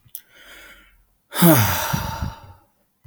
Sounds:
Sigh